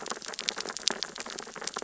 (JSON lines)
{"label": "biophony, sea urchins (Echinidae)", "recorder": "SoundTrap 600 or HydroMoth"}